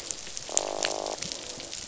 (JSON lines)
{"label": "biophony, croak", "recorder": "SoundTrap 500"}